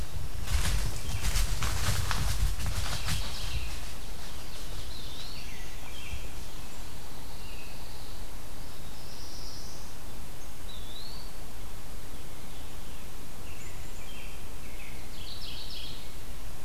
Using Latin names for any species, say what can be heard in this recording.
Seiurus aurocapilla, Turdus migratorius, Setophaga caerulescens, Contopus virens, Setophaga pinus, Geothlypis philadelphia